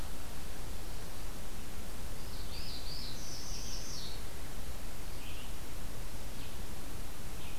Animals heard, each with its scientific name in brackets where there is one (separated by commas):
Red-eyed Vireo (Vireo olivaceus), Northern Parula (Setophaga americana)